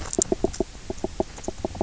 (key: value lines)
label: biophony, knock
recorder: SoundTrap 300